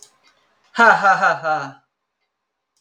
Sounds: Laughter